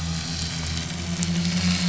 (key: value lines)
label: anthrophony, boat engine
recorder: SoundTrap 500